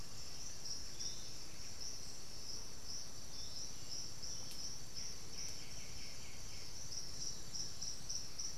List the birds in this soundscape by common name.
Piratic Flycatcher, White-winged Becard